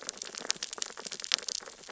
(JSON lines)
{"label": "biophony, sea urchins (Echinidae)", "recorder": "SoundTrap 600 or HydroMoth"}